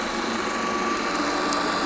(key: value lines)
label: anthrophony, boat engine
recorder: SoundTrap 500